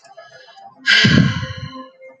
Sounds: Sigh